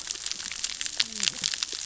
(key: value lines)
label: biophony, cascading saw
recorder: SoundTrap 600 or HydroMoth